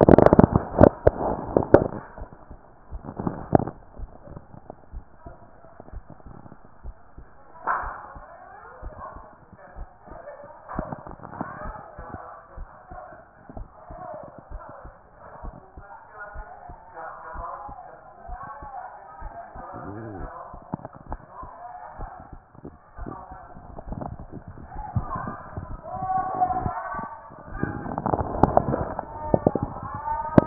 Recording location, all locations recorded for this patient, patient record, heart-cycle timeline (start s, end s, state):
tricuspid valve (TV)
pulmonary valve (PV)+tricuspid valve (TV)+mitral valve (MV)
#Age: nan
#Sex: Female
#Height: nan
#Weight: nan
#Pregnancy status: True
#Murmur: Absent
#Murmur locations: nan
#Most audible location: nan
#Systolic murmur timing: nan
#Systolic murmur shape: nan
#Systolic murmur grading: nan
#Systolic murmur pitch: nan
#Systolic murmur quality: nan
#Diastolic murmur timing: nan
#Diastolic murmur shape: nan
#Diastolic murmur grading: nan
#Diastolic murmur pitch: nan
#Diastolic murmur quality: nan
#Outcome: Normal
#Campaign: 2014 screening campaign
0.00	13.28	unannotated
13.28	13.56	diastole
13.56	13.68	S1
13.68	13.90	systole
13.90	14.00	S2
14.00	14.50	diastole
14.50	14.62	S1
14.62	14.84	systole
14.84	14.94	S2
14.94	15.44	diastole
15.44	15.56	S1
15.56	15.76	systole
15.76	15.86	S2
15.86	16.34	diastole
16.34	16.46	S1
16.46	16.68	systole
16.68	16.78	S2
16.78	17.34	diastole
17.34	17.46	S1
17.46	17.68	systole
17.68	17.76	S2
17.76	18.28	diastole
18.28	18.40	S1
18.40	18.60	systole
18.60	18.70	S2
18.70	19.14	diastole
19.14	30.46	unannotated